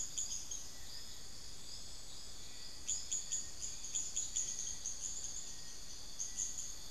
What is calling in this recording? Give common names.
Bartlett's Tinamou, Cinereous Tinamou, unidentified bird